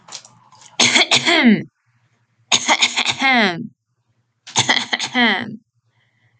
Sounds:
Cough